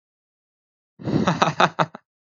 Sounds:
Laughter